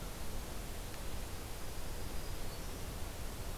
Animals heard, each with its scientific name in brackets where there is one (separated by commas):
Black-throated Green Warbler (Setophaga virens)